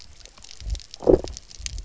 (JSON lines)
{"label": "biophony", "recorder": "SoundTrap 300"}